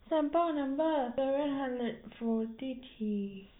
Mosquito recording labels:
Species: no mosquito; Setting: cup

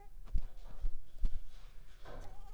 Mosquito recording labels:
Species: Mansonia uniformis; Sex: female; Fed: unfed; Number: one; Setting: cup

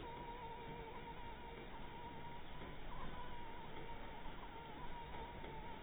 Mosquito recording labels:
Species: Anopheles dirus; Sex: female; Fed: blood-fed; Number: one; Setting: cup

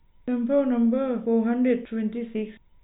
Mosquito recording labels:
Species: no mosquito; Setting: cup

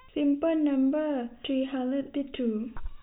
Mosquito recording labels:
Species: no mosquito; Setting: cup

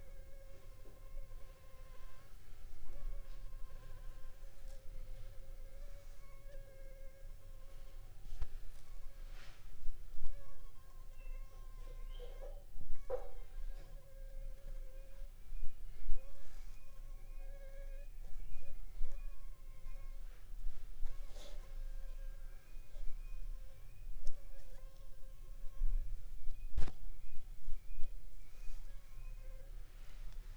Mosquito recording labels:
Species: Anopheles funestus s.s.; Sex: female; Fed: unfed; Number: one; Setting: cup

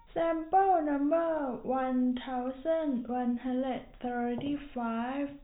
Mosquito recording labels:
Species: no mosquito; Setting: cup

